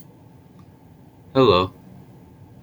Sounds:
Cough